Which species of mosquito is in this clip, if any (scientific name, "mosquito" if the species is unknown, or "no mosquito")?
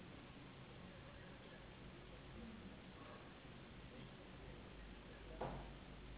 Anopheles gambiae s.s.